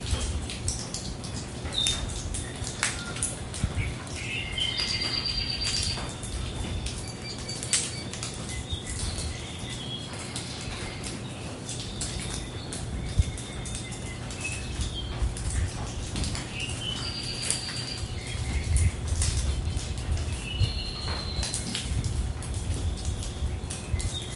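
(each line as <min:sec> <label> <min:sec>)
0:00.0 Heavy and consistent rain falling on a tiled terrace floor. 0:24.4
0:01.8 Birds are singing with sharp voices in an unsteady pattern. 0:24.4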